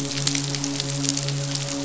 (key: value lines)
label: biophony, midshipman
recorder: SoundTrap 500